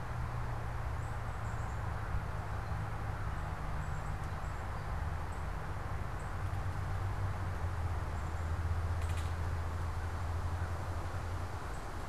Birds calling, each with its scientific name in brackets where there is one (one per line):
Black-capped Chickadee (Poecile atricapillus)
Northern Cardinal (Cardinalis cardinalis)